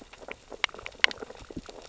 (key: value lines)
label: biophony, sea urchins (Echinidae)
recorder: SoundTrap 600 or HydroMoth